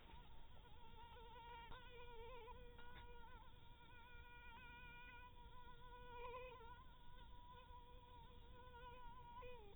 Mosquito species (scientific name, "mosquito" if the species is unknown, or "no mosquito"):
mosquito